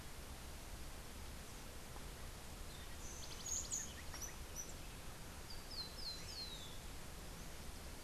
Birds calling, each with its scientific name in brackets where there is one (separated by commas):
Rufous-collared Sparrow (Zonotrichia capensis), House Wren (Troglodytes aedon)